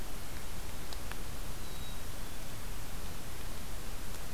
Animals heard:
Black-capped Chickadee (Poecile atricapillus)

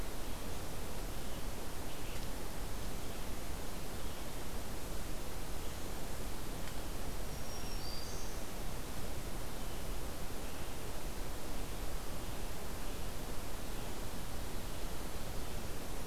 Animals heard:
Black-throated Green Warbler (Setophaga virens), Scarlet Tanager (Piranga olivacea)

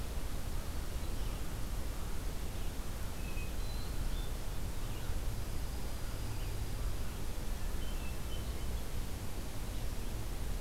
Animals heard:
Red-eyed Vireo (Vireo olivaceus), Dark-eyed Junco (Junco hyemalis), Hermit Thrush (Catharus guttatus)

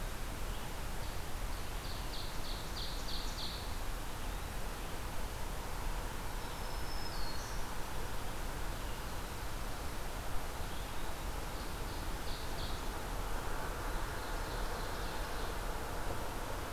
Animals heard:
Blue-headed Vireo (Vireo solitarius), Ovenbird (Seiurus aurocapilla), Black-throated Green Warbler (Setophaga virens)

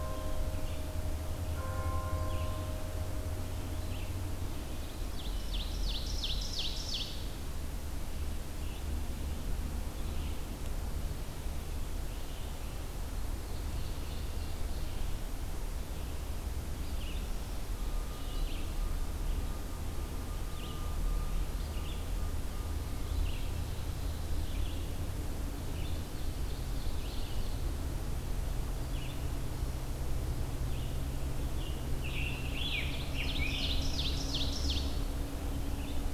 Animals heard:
Red-eyed Vireo (Vireo olivaceus), Scarlet Tanager (Piranga olivacea), Ovenbird (Seiurus aurocapilla)

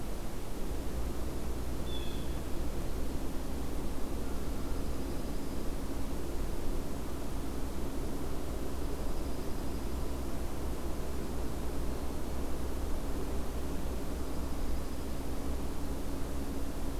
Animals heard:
Blue Jay (Cyanocitta cristata), Dark-eyed Junco (Junco hyemalis)

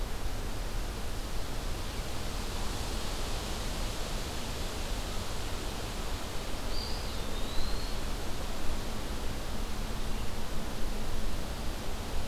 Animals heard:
Eastern Wood-Pewee (Contopus virens)

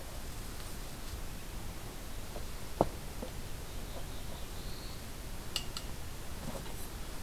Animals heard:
Black-throated Blue Warbler (Setophaga caerulescens)

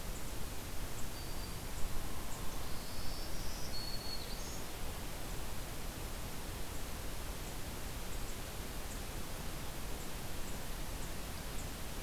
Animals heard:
Black-throated Green Warbler (Setophaga virens)

